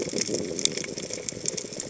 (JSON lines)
{"label": "biophony", "recorder": "HydroMoth"}